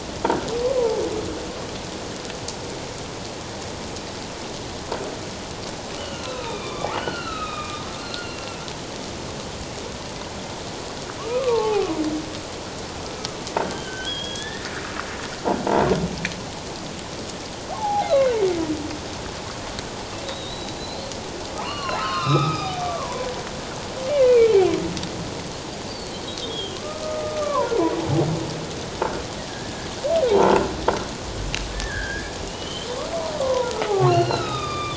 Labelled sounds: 0.8	1.0	humpback whale, 0.81 to 1.1 kHz
6.0	8.4	humpback whale, 1.0 to 4.5 kHz
11.2	11.9	humpback whale, 0.78 to 1.3 kHz
13.6	14.7	humpback whale, 1.4 to 3.6 kHz
17.7	18.1	humpback whale, 0.78 to 0.94 kHz
20.2	21.1	humpback whale, 3.6 to 4.2 kHz
21.6	23.3	humpback whale, 0.78 to 5.8 kHz
24.3	24.7	humpback whale, 2.1 to 2.6 kHz
26.4	27.7	humpback whale, 0.91 to 3.4 kHz
29.5	30.6	humpback whale, 0.78 to 1.8 kHz
31.7	32.9	humpback whale, 1.5 to 3.4 kHz
33.4	34.2	humpback whale, 0.88 to 1.5 kHz

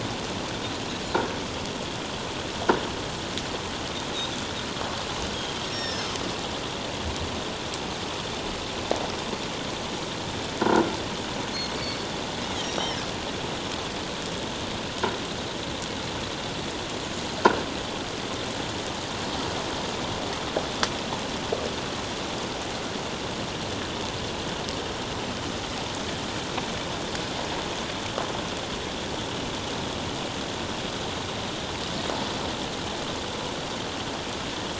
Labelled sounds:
5.3	6.1	Pacific white-sided dolphin, 1.6 to 5.7 kHz
11.5	12.0	Pacific white-sided dolphin, 4.3 to 6.6 kHz
12.6	13.0	Pacific white-sided dolphin, 3.7 to 5.8 kHz

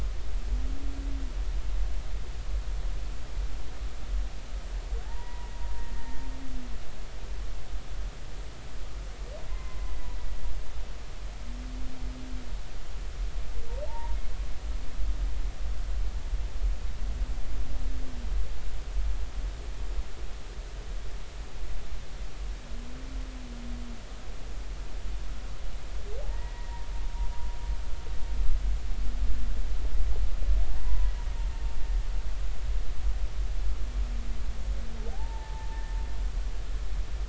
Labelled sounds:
5.0	5.5	humpback whale, 0.83 to 2.0 kHz
5.9	6.2	humpback whale, 1.8 to 1.9 kHz
9.5	9.8	humpback whale, 0.96 to 2.1 kHz
13.9	14.2	humpback whale, 0.83 to 1.0 kHz
26.2	26.7	humpback whale, 0.80 to 2.0 kHz
30.7	31.1	humpback whale, 0.86 to 1.0 kHz
35.0	35.8	humpback whale, 0.80 to 1.0 kHz

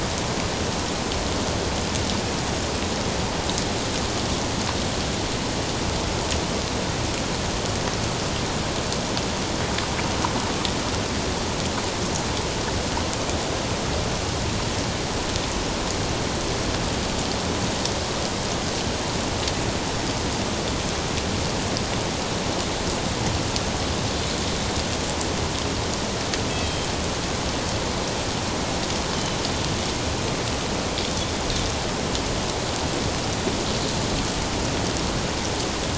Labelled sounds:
26.6	26.9	Pacific white-sided dolphin, 3.1 to 3.2 kHz

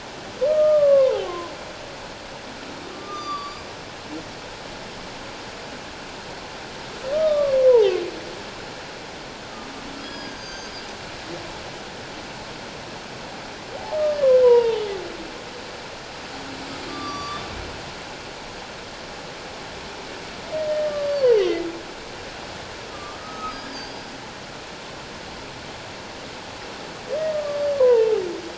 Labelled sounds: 1.2	1.5	humpback whale, 0.97 to 1.1 kHz
2.9	3.7	humpback whale, 1.1 to 6.1 kHz
7.1	7.6	humpback whale, 1.1 to 1.3 kHz
10.0	10.7	humpback whale, 1.6 to 8.0 kHz
14.4	14.8	humpback whale, 0.78 to 3.0 kHz
16.9	17.4	humpback whale, 1.1 to 5.9 kHz
20.9	21.3	humpback whale, 1.1 to 4.7 kHz
22.9	23.6	humpback whale, 1.1 to 1.3 kHz
27.2	28.2	humpback whale, 0.78 to 1.9 kHz

